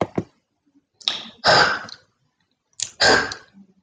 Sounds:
Throat clearing